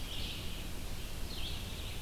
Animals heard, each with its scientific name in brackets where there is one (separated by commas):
Red-eyed Vireo (Vireo olivaceus)